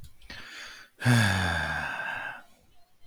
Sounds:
Sigh